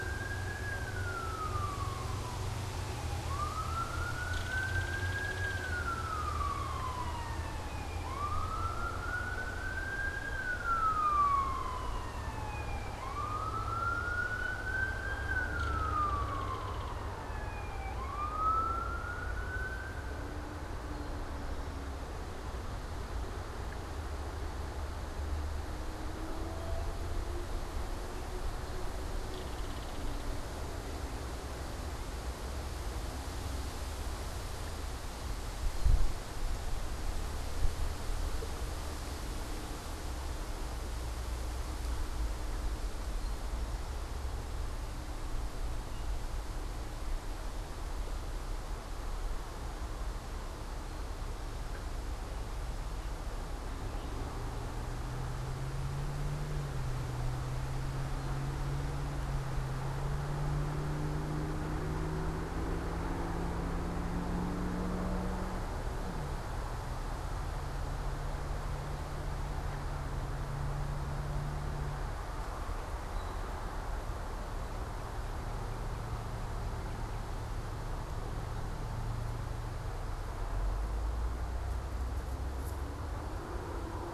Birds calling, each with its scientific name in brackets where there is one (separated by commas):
Belted Kingfisher (Megaceryle alcyon), Northern Cardinal (Cardinalis cardinalis), unidentified bird